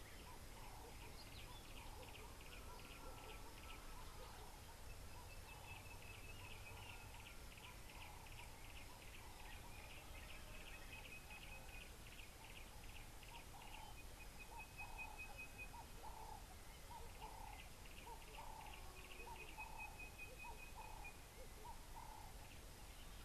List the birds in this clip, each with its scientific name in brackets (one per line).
Yellow-breasted Apalis (Apalis flavida)
Ring-necked Dove (Streptopelia capicola)
Sulphur-breasted Bushshrike (Telophorus sulfureopectus)